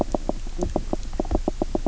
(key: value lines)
label: biophony, knock croak
recorder: SoundTrap 300